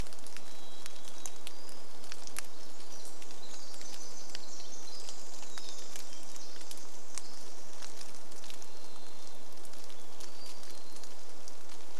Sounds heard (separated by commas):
rain, Hermit Thrush song, Varied Thrush song, Pacific Wren song